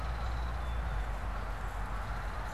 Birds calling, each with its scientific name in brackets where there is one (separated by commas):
Belted Kingfisher (Megaceryle alcyon), Canada Goose (Branta canadensis)